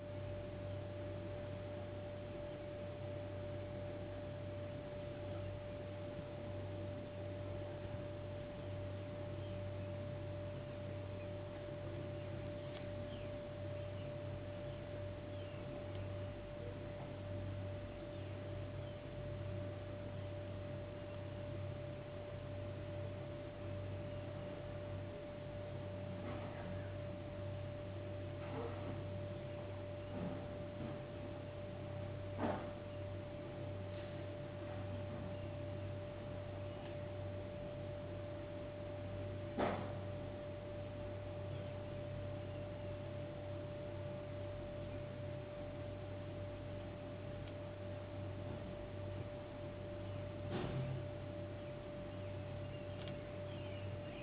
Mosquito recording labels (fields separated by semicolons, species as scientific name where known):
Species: no mosquito; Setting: insect culture